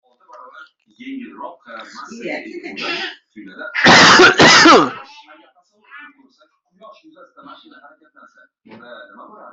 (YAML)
expert_labels:
- quality: good
  cough_type: dry
  dyspnea: false
  wheezing: false
  stridor: false
  choking: false
  congestion: false
  nothing: true
  diagnosis: healthy cough
  severity: pseudocough/healthy cough
age: 28
gender: male
respiratory_condition: true
fever_muscle_pain: true
status: symptomatic